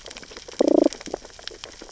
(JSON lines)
{"label": "biophony, damselfish", "recorder": "SoundTrap 600 or HydroMoth"}